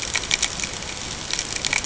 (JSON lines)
{"label": "ambient", "recorder": "HydroMoth"}